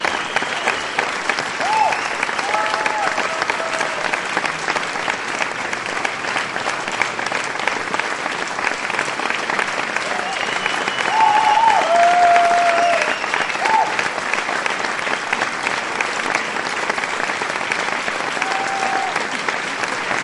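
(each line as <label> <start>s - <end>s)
A group of people claps their hands in a steady pattern. 0.0s - 20.2s
One person is cheering loudly. 1.5s - 2.2s
People cheer briefly. 2.4s - 4.3s
People are cheering. 11.0s - 13.3s
One person is cheering loudly. 13.6s - 14.1s
People are cheering. 18.3s - 19.3s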